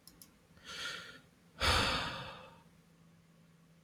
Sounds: Sigh